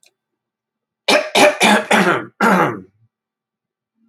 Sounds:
Throat clearing